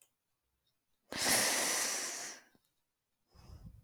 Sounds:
Sigh